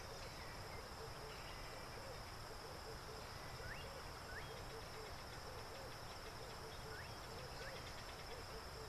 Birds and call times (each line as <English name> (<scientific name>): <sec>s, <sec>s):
Red-eyed Dove (Streptopelia semitorquata): 4.6s